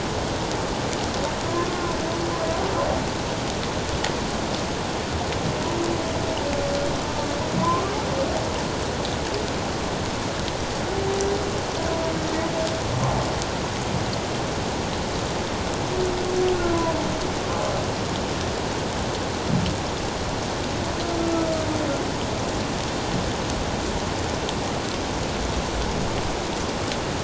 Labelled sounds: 7.6	7.8	humpback whale, 0.94 to 1.2 kHz

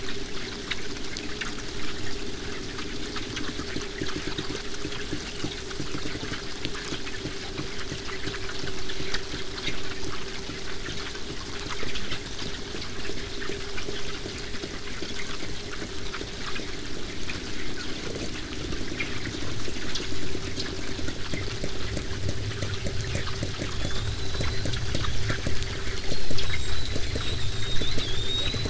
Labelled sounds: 13.7	18.7	vessel noise, 0 to 8.0 kHz
19.9	20.3	killer whale, southern resident, 6.3 to 8.0 kHz
23.6	28.6	killer whale, southern resident, 3.1 to 8.0 kHz

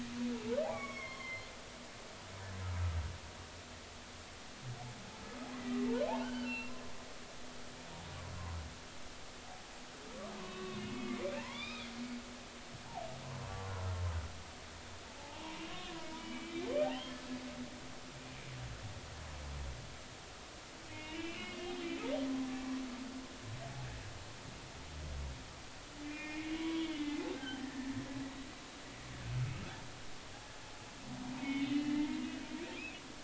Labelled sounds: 0.7	1.5	humpback whale, 0.99 to 3.4 kHz
2.2	2.5	humpback whale, 4.1 to 4.4 kHz
5.9	6.7	humpback whale, 0.86 to 3.1 kHz
10.4	11.9	humpback whale, 0.83 to 5.1 kHz
15.2	17.2	humpback whale, 0.80 to 3.3 kHz
20.8	22.0	humpback whale, 2.0 to 3.3 kHz
26.0	27.9	humpback whale, 0.93 to 3.6 kHz
31.4	33.0	humpback whale, 1.7 to 3.7 kHz

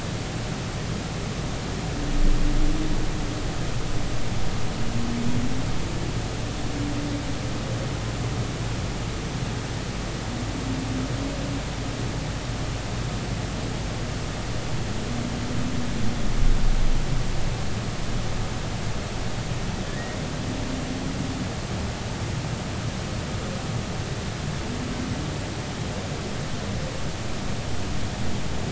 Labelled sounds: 19.9	20.2	humpback whale, 1.7 to 2.0 kHz

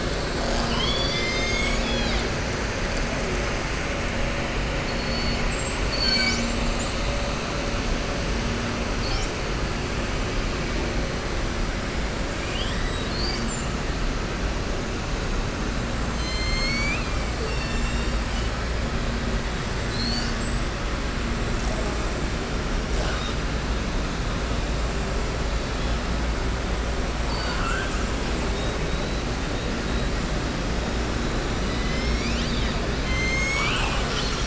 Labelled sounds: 0.3	2.3	killer whale, southern resident, 0.75 to 7.8 kHz
4.8	5.4	killer whale, southern resident, 4.3 to 5.2 kHz
5.8	7.0	killer whale, southern resident, 1.5 to 7.8 kHz
27.2	28.0	killer whale, southern resident, 0.92 to 4.9 kHz
33.0	34.4	killer whale, southern resident, 0.83 to 7.8 kHz

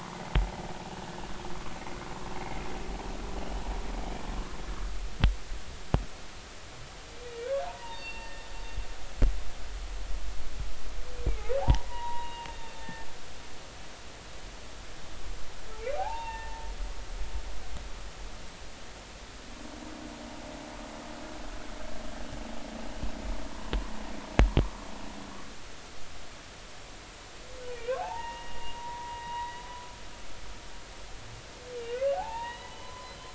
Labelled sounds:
7.4	8.5	humpback whale, 0.83 to 3.7 kHz
11.2	13.1	humpback whale, 0.80 to 2.9 kHz
15.9	16.7	humpback whale, 0.80 to 3.7 kHz
27.7	29.6	humpback whale, 0.80 to 3.9 kHz
32.1	33.3	humpback whale, 0.80 to 4.1 kHz

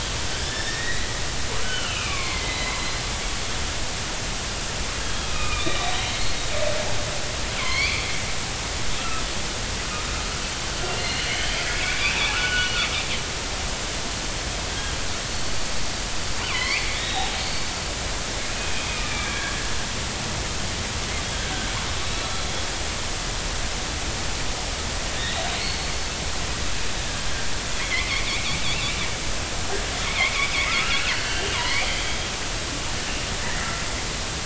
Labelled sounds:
0.3	1.2	killer whale, northern resident, 1.5 to 5.6 kHz
1.6	3.0	killer whale, northern resident, 0.99 to 4.2 kHz
5.0	6.4	killer whale, northern resident, 1.2 to 4.4 kHz
7.6	8.0	killer whale, northern resident, 0.96 to 4.8 kHz
9.0	9.2	killer whale, northern resident, 1.2 to 1.4 kHz
11.0	11.6	killer whale, northern resident, 2.0 to 4.4 kHz
12.0	12.8	killer whale, northern resident, 1.1 to 3.0 kHz
16.5	17.3	killer whale, northern resident, 0.96 to 4.7 kHz
19.1	19.5	killer whale, northern resident, 1.6 to 2.5 kHz
25.2	25.9	killer whale, northern resident, 3.4 to 4.5 kHz
27.8	28.1	killer whale, northern resident, 1.9 to 2.5 kHz
30.1	31.9	killer whale, northern resident, 0.90 to 4.7 kHz

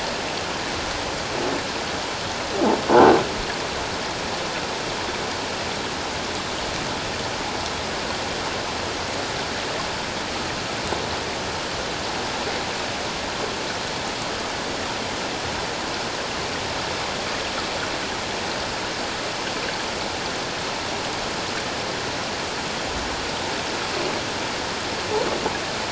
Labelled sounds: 2.9	3.2	croaking sound likely from a nearby submerged object, 1.3 to 1.6 kHz

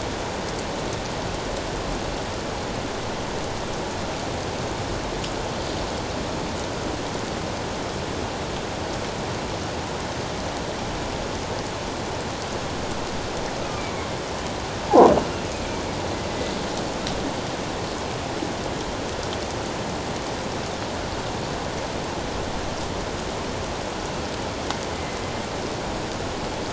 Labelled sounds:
14.8	15.1	croaking sound likely from a nearby submerged object, 0.78 to 1.1 kHz
16.3	16.6	killer whale, northern resident, A clan, AA subclan, A04 pod, 1.9 to 2.1 kHz
24.9	25.2	killer whale, northern resident, A clan, AA subclan, A04 pod, 2.0 to 2.1 kHz

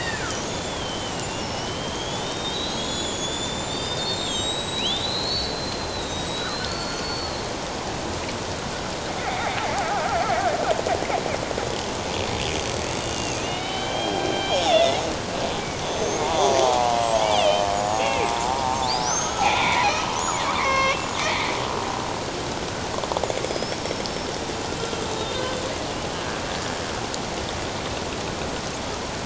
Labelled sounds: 1.4	2.2	killer whale, Bigg's (transient), 5.1 to 6.9 kHz
2.5	7.4	killer whale, Bigg's (transient), 1.3 to 7.9 kHz
9.2	10.2	killer whale, Bigg's (transient), 0.78 to 2.4 kHz
13.0	15.0	killer whale, Bigg's (transient), 1.9 to 5.7 kHz
15.8	17.0	killer whale, Bigg's (transient), 0.78 to 6.6 kHz
17.4	18.3	killer whale, Bigg's (transient), 2.1 to 3.7 kHz
18.9	20.0	killer whale, Bigg's (transient), 1.2 to 6.6 kHz
20.5	21.1	killer whale, Bigg's (transient), 1.0 to 6.0 kHz
23.5	24.1	killer whale, Bigg's (transient), 4.9 to 5.6 kHz

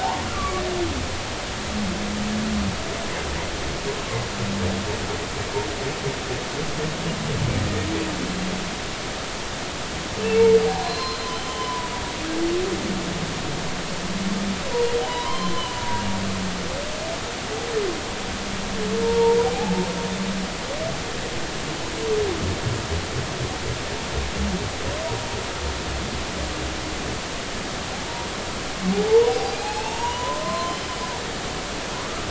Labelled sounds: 0.0	0.6	humpback whale, 0.80 to 1.4 kHz
10.6	11.9	humpback whale, 0.80 to 4.2 kHz
15.0	16.0	humpback whale, 0.80 to 4.2 kHz
19.0	19.7	humpback whale, 0.80 to 0.99 kHz
28.0	30.9	humpback whale, 0.80 to 6.8 kHz

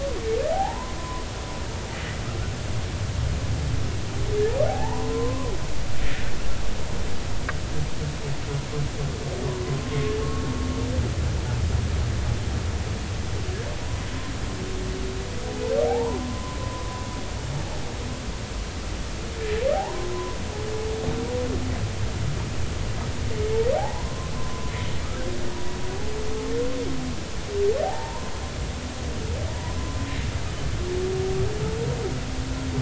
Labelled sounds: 0.5	1.2	humpback whale, 0.80 to 1.1 kHz
4.7	5.5	humpback whale, 0.80 to 1.2 kHz
9.8	10.2	humpback whale, 1.0 to 1.1 kHz
15.8	16.6	humpback whale, 0.80 to 1.1 kHz
19.7	20.4	humpback whale, 0.80 to 1.1 kHz
23.7	24.7	humpback whale, 0.80 to 1.1 kHz
27.8	28.3	humpback whale, 0.80 to 1.1 kHz
29.5	29.8	humpback whale, 0.86 to 1.1 kHz

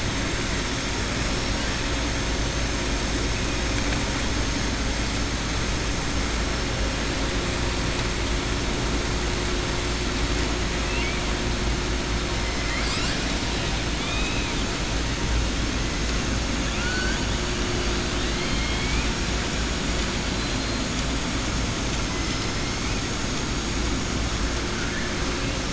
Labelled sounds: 16.7	17.2	killer whale, southern resident, 1.4 to 2.6 kHz
18.1	19.1	killer whale, southern resident, 2.0 to 4.3 kHz
20.3	20.8	killer whale, southern resident, 3.2 to 4.2 kHz
21.8	22.8	killer whale, southern resident, 4.2 to 7.0 kHz

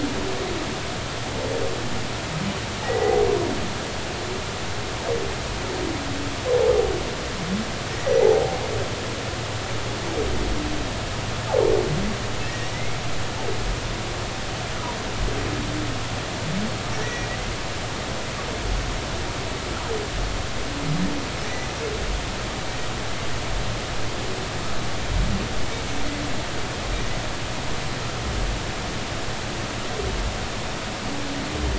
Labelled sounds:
8.2	8.6	humpback whale, 0.80 to 0.96 kHz
12.4	13.0	humpback whale, 1.7 to 2.2 kHz
17.0	17.3	humpback whale, 1.9 to 5.8 kHz

